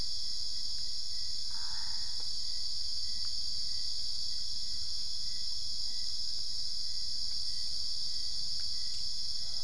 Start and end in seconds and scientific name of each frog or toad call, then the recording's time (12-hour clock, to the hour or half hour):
1.2	2.8	Boana albopunctata
4:30am